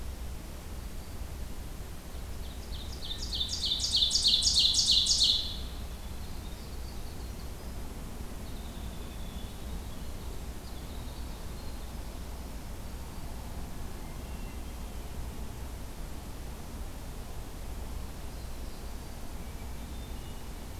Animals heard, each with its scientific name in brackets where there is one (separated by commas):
Black-throated Green Warbler (Setophaga virens), Hermit Thrush (Catharus guttatus), Winter Wren (Troglodytes hiemalis), Ovenbird (Seiurus aurocapilla)